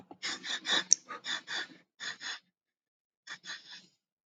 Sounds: Sniff